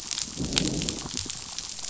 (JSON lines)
{"label": "biophony, growl", "recorder": "SoundTrap 500"}